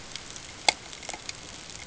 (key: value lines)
label: ambient
recorder: HydroMoth